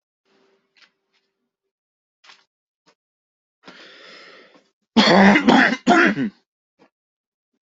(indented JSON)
{
  "expert_labels": [
    {
      "quality": "good",
      "cough_type": "wet",
      "dyspnea": false,
      "wheezing": false,
      "stridor": false,
      "choking": false,
      "congestion": false,
      "nothing": true,
      "diagnosis": "healthy cough",
      "severity": "pseudocough/healthy cough"
    }
  ],
  "age": 34,
  "gender": "male",
  "respiratory_condition": true,
  "fever_muscle_pain": false,
  "status": "symptomatic"
}